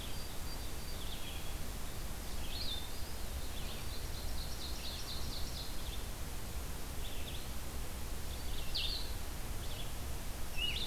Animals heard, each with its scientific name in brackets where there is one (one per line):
Eastern Wood-Pewee (Contopus virens)
Blue-headed Vireo (Vireo solitarius)
Ovenbird (Seiurus aurocapilla)
Song Sparrow (Melospiza melodia)
Red-eyed Vireo (Vireo olivaceus)